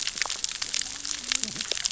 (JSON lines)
{"label": "biophony, cascading saw", "recorder": "SoundTrap 600 or HydroMoth"}